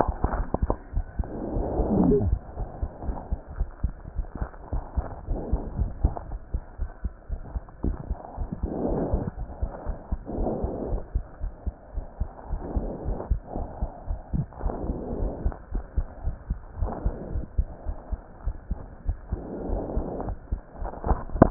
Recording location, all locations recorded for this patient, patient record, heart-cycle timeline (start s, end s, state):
aortic valve (AV)
aortic valve (AV)+pulmonary valve (PV)+tricuspid valve (TV)+mitral valve (MV)
#Age: Child
#Sex: Male
#Height: 138.0 cm
#Weight: 31.3 kg
#Pregnancy status: False
#Murmur: Absent
#Murmur locations: nan
#Most audible location: nan
#Systolic murmur timing: nan
#Systolic murmur shape: nan
#Systolic murmur grading: nan
#Systolic murmur pitch: nan
#Systolic murmur quality: nan
#Diastolic murmur timing: nan
#Diastolic murmur shape: nan
#Diastolic murmur grading: nan
#Diastolic murmur pitch: nan
#Diastolic murmur quality: nan
#Outcome: Normal
#Campaign: 2015 screening campaign
0.00	3.05	unannotated
3.05	3.20	S1
3.20	3.30	systole
3.30	3.40	S2
3.40	3.58	diastole
3.58	3.70	S1
3.70	3.82	systole
3.82	3.96	S2
3.96	4.16	diastole
4.16	4.28	S1
4.28	4.40	systole
4.40	4.50	S2
4.50	4.72	diastole
4.72	4.84	S1
4.84	4.96	systole
4.96	5.06	S2
5.06	5.26	diastole
5.26	5.40	S1
5.40	5.50	systole
5.50	5.64	S2
5.64	5.78	diastole
5.78	5.92	S1
5.92	6.02	systole
6.02	6.16	S2
6.16	6.32	diastole
6.32	6.40	S1
6.40	6.52	systole
6.52	6.62	S2
6.62	6.80	diastole
6.80	6.90	S1
6.90	7.04	systole
7.04	7.12	S2
7.12	7.32	diastole
7.32	7.40	S1
7.40	7.54	systole
7.54	7.64	S2
7.64	7.82	diastole
7.82	7.98	S1
7.98	8.08	systole
8.08	8.18	S2
8.18	8.38	diastole
8.38	8.50	S1
8.50	8.62	systole
8.62	8.72	S2
8.72	8.90	diastole
8.90	9.02	S1
9.02	9.12	systole
9.12	9.26	S2
9.26	9.40	diastole
9.40	9.50	S1
9.50	9.60	systole
9.60	9.72	S2
9.72	9.88	diastole
9.88	9.96	S1
9.96	10.08	systole
10.08	10.20	S2
10.20	10.36	diastole
10.36	10.52	S1
10.52	10.62	systole
10.62	10.72	S2
10.72	10.90	diastole
10.90	11.02	S1
11.02	11.12	systole
11.12	11.26	S2
11.26	11.42	diastole
11.42	11.54	S1
11.54	11.66	systole
11.66	11.76	S2
11.76	11.96	diastole
11.96	12.06	S1
12.06	12.20	systole
12.20	12.30	S2
12.30	12.50	diastole
12.50	12.62	S1
12.62	12.74	systole
12.74	12.90	S2
12.90	13.08	diastole
13.08	13.20	S1
13.20	13.28	systole
13.28	13.42	S2
13.42	13.56	diastole
13.56	13.68	S1
13.68	13.78	systole
13.78	13.90	S2
13.90	14.08	diastole
14.08	14.20	S1
14.20	14.32	systole
14.32	14.46	S2
14.46	14.64	diastole
14.64	14.78	S1
14.78	14.86	systole
14.86	14.98	S2
14.98	15.18	diastole
15.18	15.32	S1
15.32	15.40	systole
15.40	15.52	S2
15.52	15.72	diastole
15.72	15.84	S1
15.84	15.96	systole
15.96	16.08	S2
16.08	16.26	diastole
16.26	16.38	S1
16.38	16.48	systole
16.48	16.62	S2
16.62	16.80	diastole
16.80	16.94	S1
16.94	17.04	systole
17.04	17.14	S2
17.14	17.32	diastole
17.32	17.44	S1
17.44	17.56	systole
17.56	17.72	S2
17.72	17.88	diastole
17.88	17.96	S1
17.96	18.10	systole
18.10	18.22	S2
18.22	18.44	diastole
18.44	18.56	S1
18.56	18.70	systole
18.70	18.84	S2
18.84	19.06	diastole
19.06	19.16	S1
19.16	21.50	unannotated